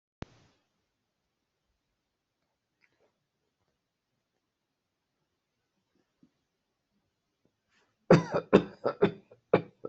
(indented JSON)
{
  "expert_labels": [
    {
      "quality": "good",
      "cough_type": "unknown",
      "dyspnea": false,
      "wheezing": false,
      "stridor": false,
      "choking": false,
      "congestion": false,
      "nothing": true,
      "diagnosis": "upper respiratory tract infection",
      "severity": "mild"
    }
  ],
  "age": 56,
  "gender": "male",
  "respiratory_condition": false,
  "fever_muscle_pain": false,
  "status": "healthy"
}